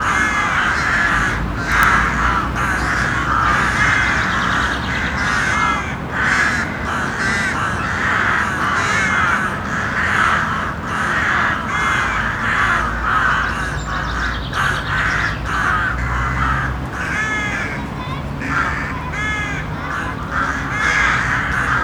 Is a person playing a piano?
no